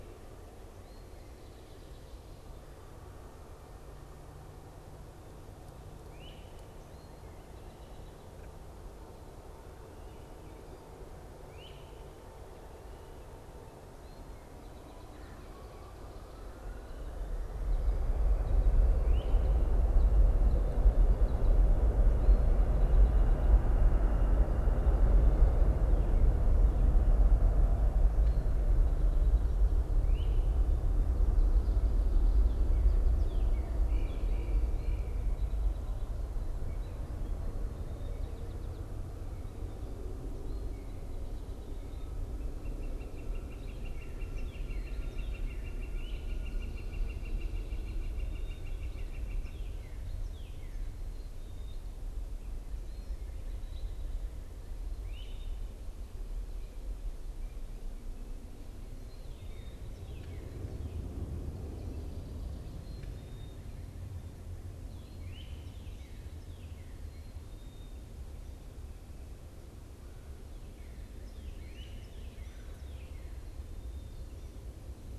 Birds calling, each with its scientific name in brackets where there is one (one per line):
Northern Cardinal (Cardinalis cardinalis)
Northern Flicker (Colaptes auratus)
Black-capped Chickadee (Poecile atricapillus)
Great Crested Flycatcher (Myiarchus crinitus)